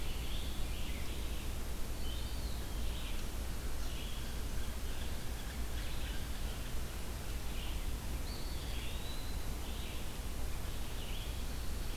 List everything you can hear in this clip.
Red-eyed Vireo, Eastern Wood-Pewee, Pine Warbler